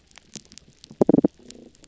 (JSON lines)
{"label": "biophony", "recorder": "SoundTrap 300"}